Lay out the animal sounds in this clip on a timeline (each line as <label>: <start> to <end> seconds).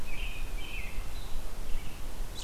American Robin (Turdus migratorius): 0.0 to 2.4 seconds